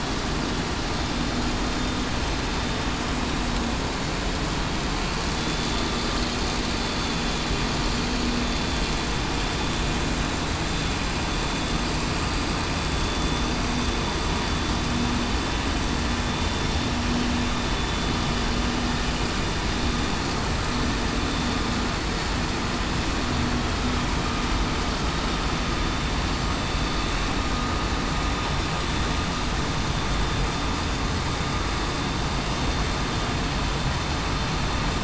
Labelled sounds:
5.3	5.7	vessel noise, 3.4 to 3.5 kHz
6.8	7.4	vessel noise, 3.4 to 3.5 kHz
13.0	13.5	vessel noise, 3.4 to 3.5 kHz
17.7	18.1	vessel noise, 3.4 to 3.5 kHz

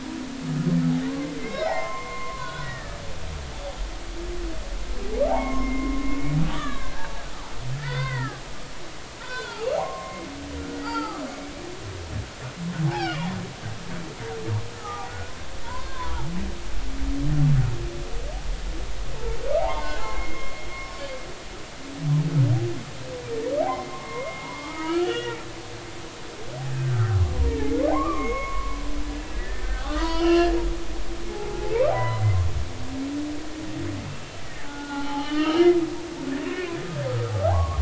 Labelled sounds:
1.1	3.0	humpback whale, 0.80 to 3.6 kHz
5.3	6.1	humpback whale, 0.80 to 2.2 kHz
6.4	7.3	humpback whale, 0.83 to 4.1 kHz
7.8	10.3	humpback whale, 0.80 to 4.8 kHz
10.6	11.2	humpback whale, 0.80 to 4.8 kHz
12.9	13.3	humpback whale, 1.4 to 3.4 kHz
14.8	16.3	humpback whale, 0.80 to 1.3 kHz
19.6	20.5	humpback whale, 0.80 to 2.2 kHz
23.6	25.4	humpback whale, 0.80 to 3.0 kHz
26.7	28.8	humpback whale, 0.80 to 2.3 kHz
29.3	30.5	humpback whale, 0.90 to 4.8 kHz
30.9	31.9	humpback whale, 0.80 to 2.4 kHz
32.9	33.2	humpback whale, 0.93 to 2.0 kHz
34.6	35.7	humpback whale, 0.80 to 3.3 kHz
36.4	36.8	humpback whale, 2.3 to 2.8 kHz
37.4	37.7	humpback whale, 0.80 to 1.2 kHz

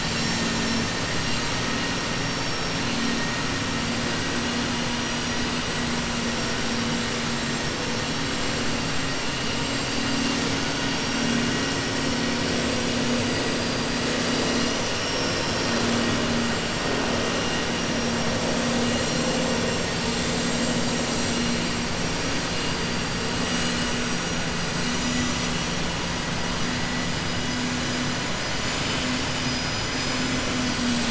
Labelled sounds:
14.9	15.8	vessel noise, 4.1 to 6.3 kHz
29.3	30.3	vessel noise, 4.4 to 6.0 kHz

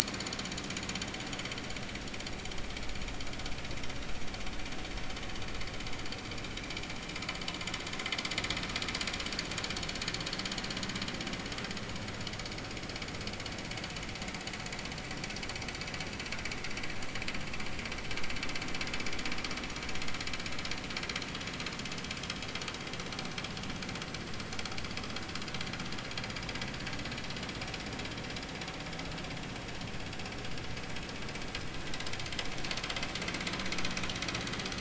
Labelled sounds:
1.0	1.6	vessel noise, 6.7 to 7.1 kHz

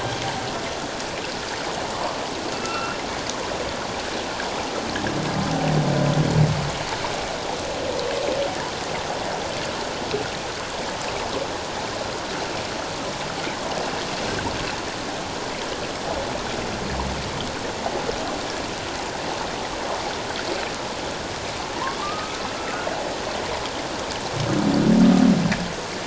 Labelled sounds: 2.5	3.0	humpback whale, 1.2 to 2.8 kHz
22.0	22.4	humpback whale, 1.1 to 1.3 kHz

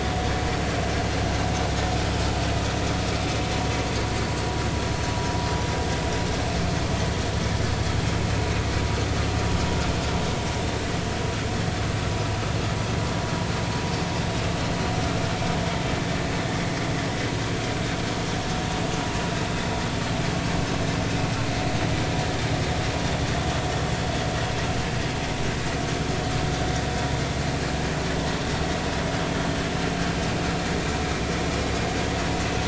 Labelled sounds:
23.0	23.3	vessel noise, 3.4 to 3.5 kHz

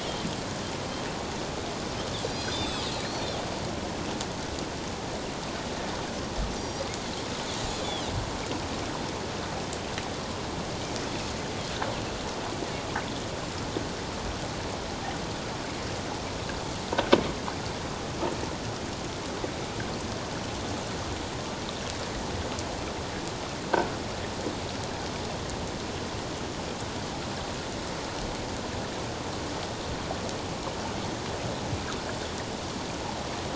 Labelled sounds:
2.2	2.9	Pacific white-sided dolphin, 2.9 to 6.1 kHz
6.6	6.9	Pacific white-sided dolphin, 4.7 to 6.0 kHz
7.8	8.1	Pacific white-sided dolphin, 2.7 to 3.5 kHz

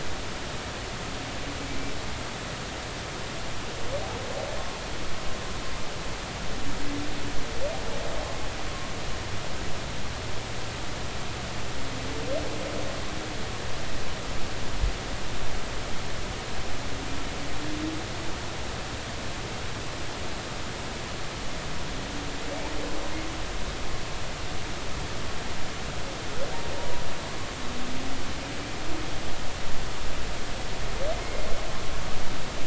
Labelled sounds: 31.2	31.5	humpback whale, 2.1 to 2.2 kHz

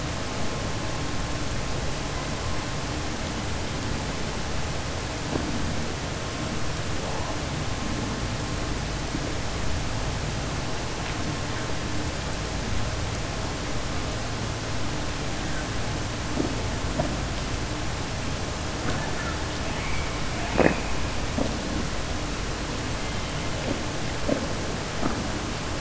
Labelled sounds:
18.7	19.4	killer whale, southern resident, 0.54 to 1.8 kHz
19.7	20.1	killer whale, southern resident, 2.0 to 3.3 kHz

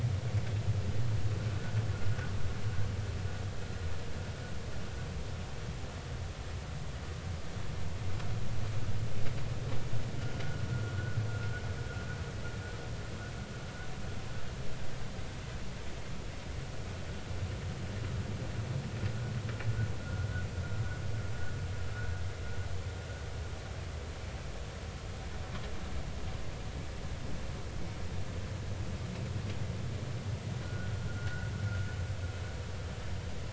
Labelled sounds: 20.0	20.3	vessel noise, 1.3 to 1.5 kHz
30.6	31.5	vessel noise, 1.4 to 1.5 kHz

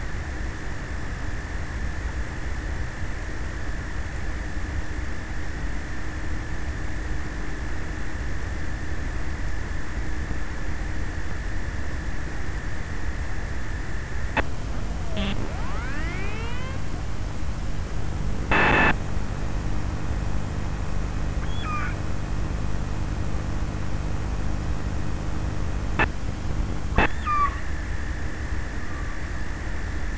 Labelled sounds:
21.3	22.4	killer whale, offshore, 0.47 to 4.7 kHz
26.6	28.0	killer whale, offshore, 0.79 to 5.7 kHz

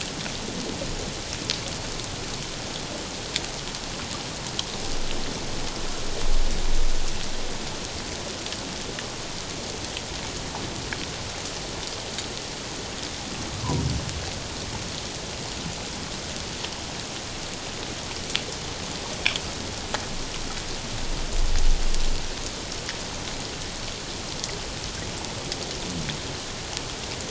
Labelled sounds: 13.5	13.8	humpback whale, 0.91 to 1.3 kHz

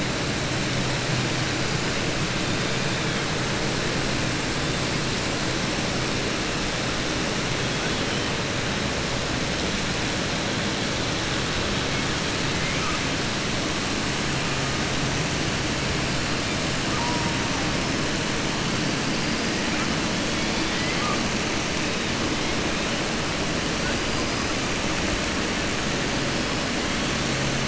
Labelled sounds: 12.6	13.0	killer whale, southern resident, 1.1 to 2.9 kHz
20.3	21.2	killer whale, southern resident, 1.1 to 4.8 kHz

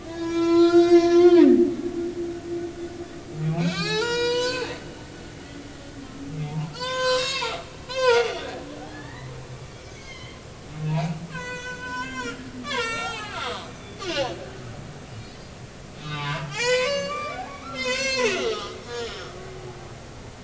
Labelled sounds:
0.1	1.4	humpback whale, 0.93 to 7.7 kHz
1.7	2.0	humpback whale, 1.1 to 1.2 kHz
3.4	4.7	humpback whale, 0.80 to 8.0 kHz
6.5	9.3	humpback whale, 0.80 to 7.8 kHz
9.9	13.7	humpback whale, 0.80 to 8.0 kHz
14.0	14.4	humpback whale, 2.7 to 3.0 kHz
16.0	19.3	humpback whale, 0.80 to 8.0 kHz

